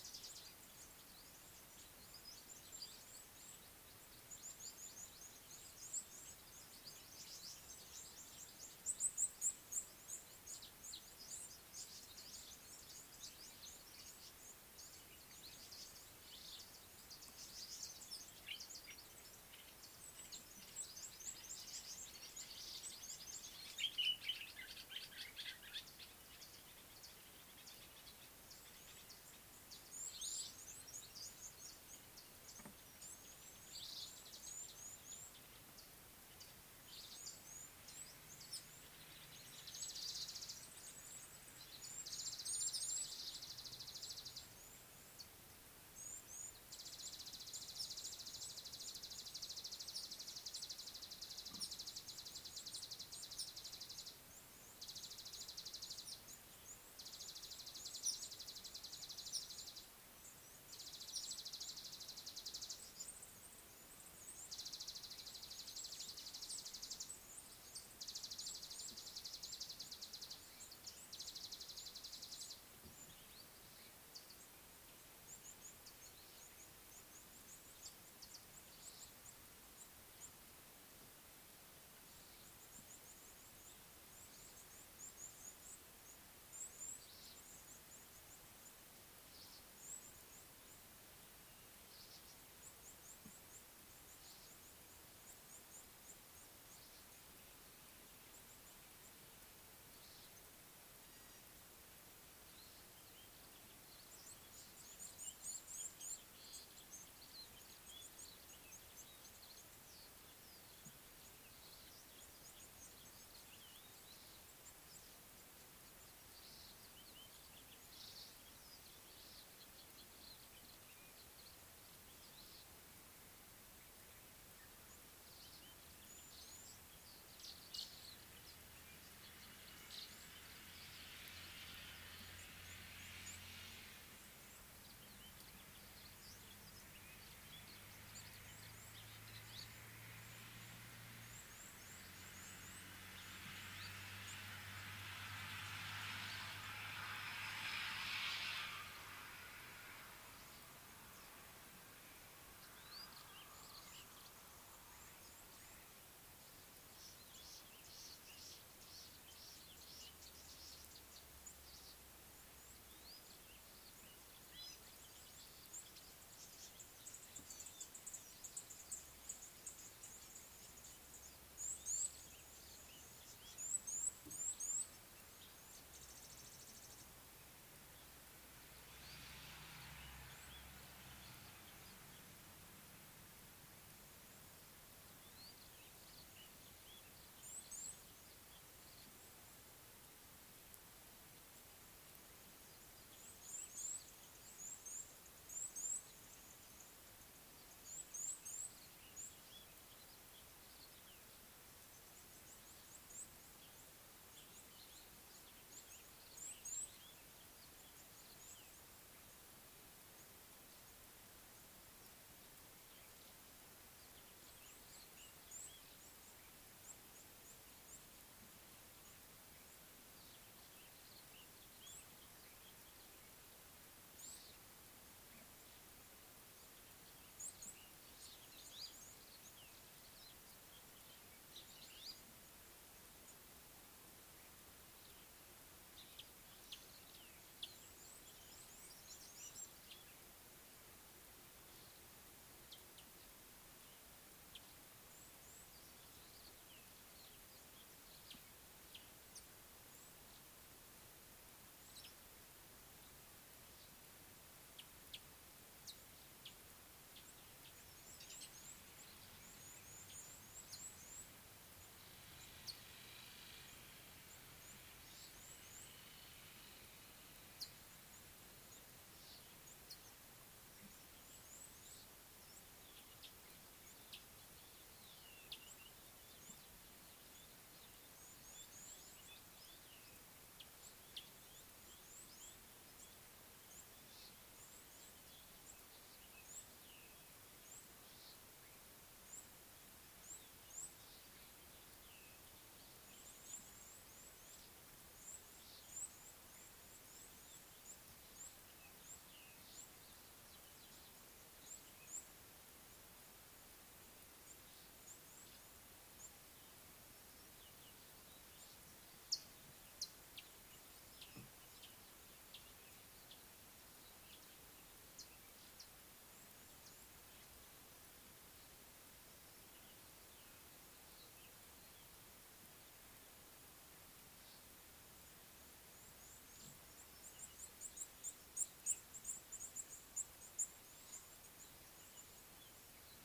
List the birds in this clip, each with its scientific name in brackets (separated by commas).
Red-cheeked Cordonbleu (Uraeginthus bengalus), Mariqua Sunbird (Cinnyris mariquensis), Gray-backed Camaroptera (Camaroptera brevicaudata), Red-headed Weaver (Anaplectes rubriceps), Scarlet-chested Sunbird (Chalcomitra senegalensis), Purple Grenadier (Granatina ianthinogaster), Common Bulbul (Pycnonotus barbatus)